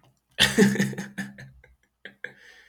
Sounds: Laughter